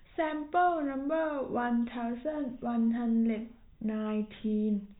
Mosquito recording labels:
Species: no mosquito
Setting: cup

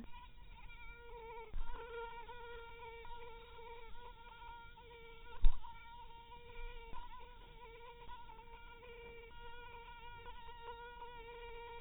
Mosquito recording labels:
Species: mosquito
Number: one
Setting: cup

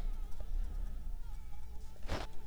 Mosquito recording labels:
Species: Anopheles arabiensis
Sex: female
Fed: unfed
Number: one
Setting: cup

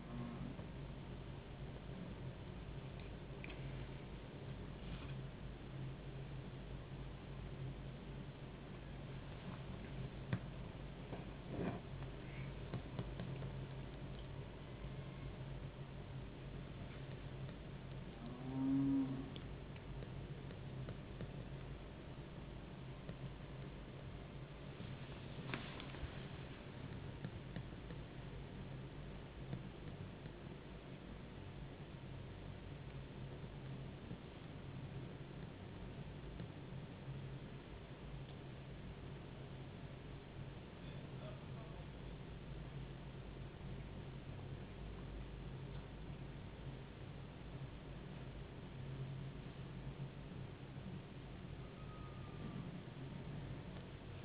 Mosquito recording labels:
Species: no mosquito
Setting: insect culture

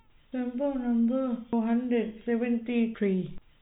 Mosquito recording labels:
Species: no mosquito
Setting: cup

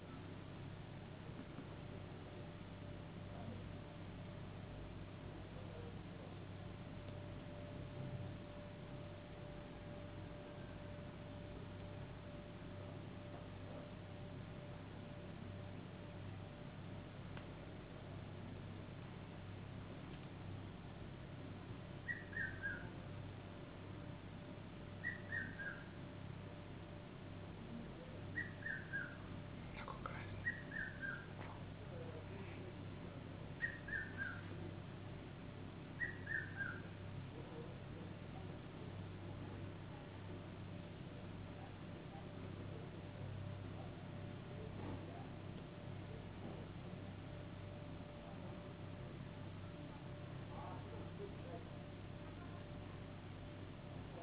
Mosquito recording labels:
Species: no mosquito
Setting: insect culture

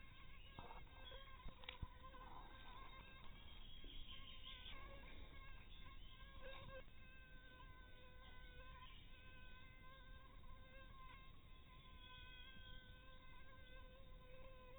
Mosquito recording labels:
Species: mosquito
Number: one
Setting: cup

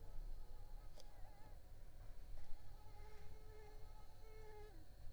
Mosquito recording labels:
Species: Mansonia africanus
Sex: female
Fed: unfed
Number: one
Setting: cup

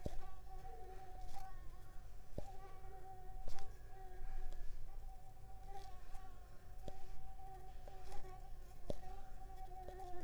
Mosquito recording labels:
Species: Mansonia uniformis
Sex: female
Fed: unfed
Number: one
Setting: cup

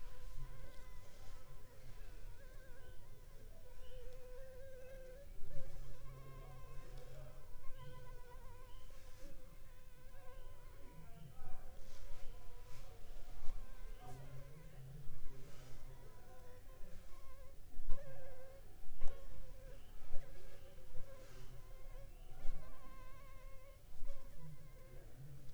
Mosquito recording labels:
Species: Anopheles funestus s.s.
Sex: female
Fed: blood-fed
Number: one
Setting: cup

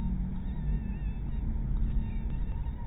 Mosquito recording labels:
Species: mosquito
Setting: cup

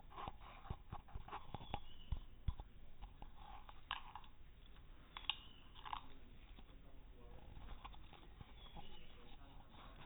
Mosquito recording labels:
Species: no mosquito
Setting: cup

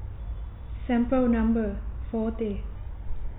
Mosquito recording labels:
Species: no mosquito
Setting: cup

